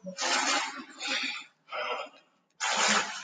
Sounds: Sigh